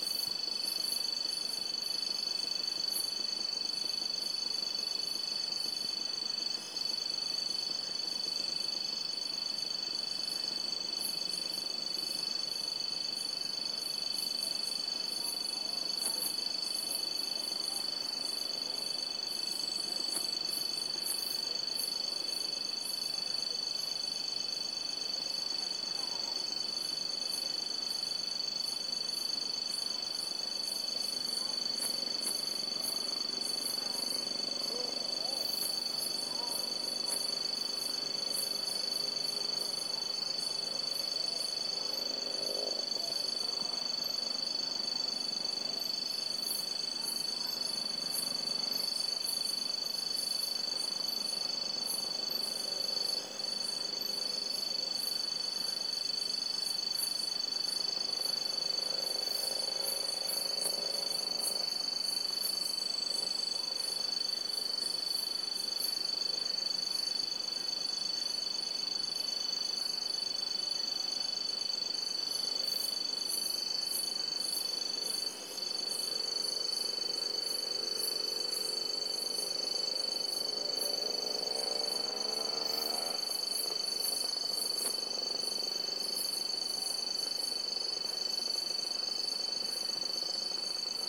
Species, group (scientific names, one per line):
Mecopoda elongata
Orthoptera